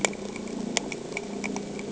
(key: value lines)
label: anthrophony, boat engine
recorder: HydroMoth